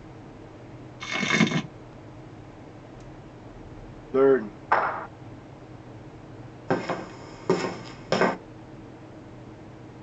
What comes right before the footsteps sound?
clapping